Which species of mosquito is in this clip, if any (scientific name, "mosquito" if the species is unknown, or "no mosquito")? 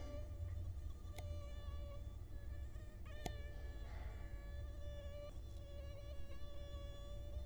Culex quinquefasciatus